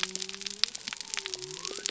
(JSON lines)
{"label": "biophony", "recorder": "SoundTrap 300"}